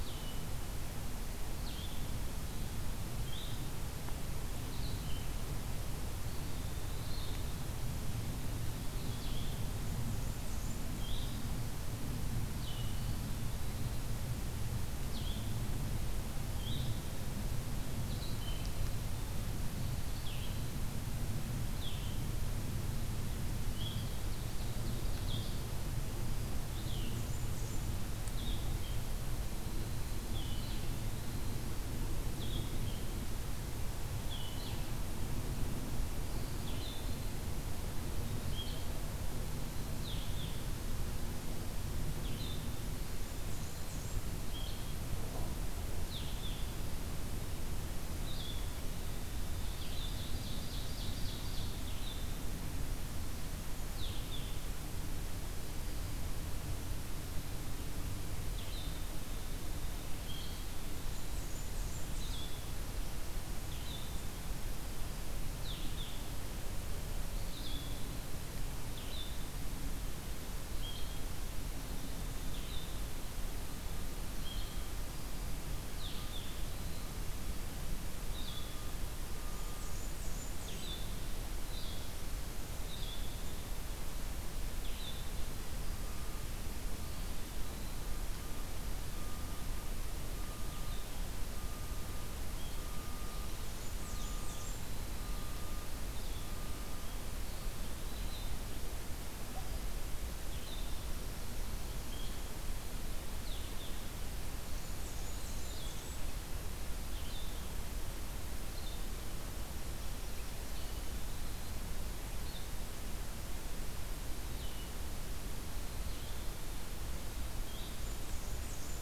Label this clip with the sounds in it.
Red-eyed Vireo, Eastern Wood-Pewee, Blackburnian Warbler, Ovenbird, Dark-eyed Junco, Black-throated Green Warbler